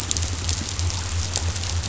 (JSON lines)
{"label": "biophony", "recorder": "SoundTrap 500"}